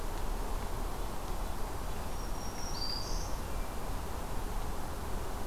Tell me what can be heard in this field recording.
Black-throated Green Warbler